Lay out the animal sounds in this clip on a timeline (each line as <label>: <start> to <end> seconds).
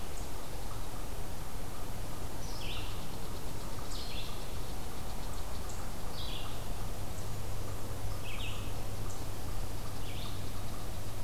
Red-eyed Vireo (Vireo olivaceus): 0.0 to 11.2 seconds
unknown mammal: 0.0 to 11.2 seconds